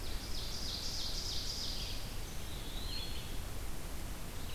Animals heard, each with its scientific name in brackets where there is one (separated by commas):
Eastern Wood-Pewee (Contopus virens), Ovenbird (Seiurus aurocapilla), Red-eyed Vireo (Vireo olivaceus)